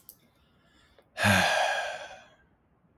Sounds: Sigh